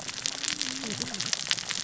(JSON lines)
{"label": "biophony, cascading saw", "recorder": "SoundTrap 600 or HydroMoth"}